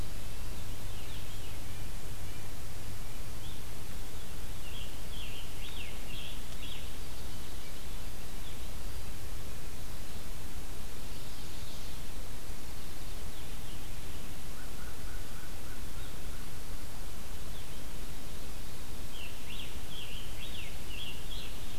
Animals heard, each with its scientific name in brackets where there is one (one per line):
American Crow (Corvus brachyrhynchos)
Scarlet Tanager (Piranga olivacea)